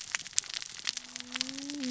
{"label": "biophony, cascading saw", "recorder": "SoundTrap 600 or HydroMoth"}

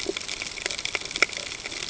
{"label": "ambient", "recorder": "HydroMoth"}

